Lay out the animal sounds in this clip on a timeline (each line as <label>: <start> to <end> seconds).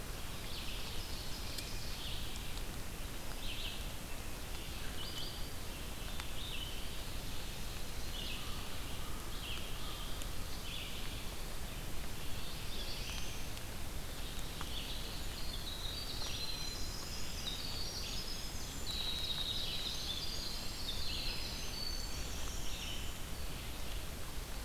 Ovenbird (Seiurus aurocapilla): 0.0 to 2.2 seconds
Red-eyed Vireo (Vireo olivaceus): 0.3 to 24.6 seconds
American Crow (Corvus brachyrhynchos): 8.4 to 10.4 seconds
Black-throated Blue Warbler (Setophaga caerulescens): 12.1 to 13.8 seconds
Winter Wren (Troglodytes hiemalis): 14.5 to 23.5 seconds
Ovenbird (Seiurus aurocapilla): 18.1 to 20.4 seconds